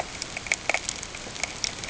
{"label": "ambient", "recorder": "HydroMoth"}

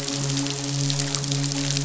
{"label": "biophony, midshipman", "recorder": "SoundTrap 500"}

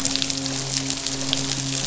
{"label": "biophony, midshipman", "recorder": "SoundTrap 500"}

